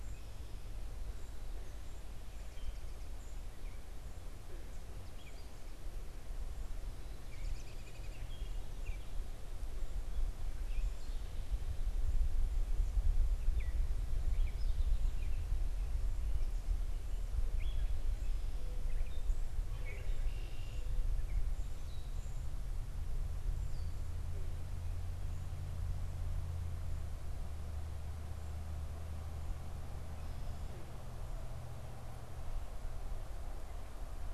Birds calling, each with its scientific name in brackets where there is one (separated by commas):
American Robin (Turdus migratorius), Gray Catbird (Dumetella carolinensis), Mourning Dove (Zenaida macroura)